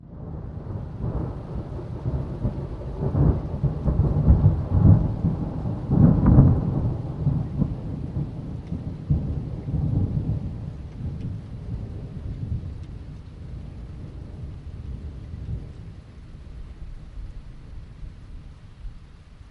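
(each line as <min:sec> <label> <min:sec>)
0:00.1 Thunder sounds. 0:16.3
0:16.4 The sound of rain. 0:19.5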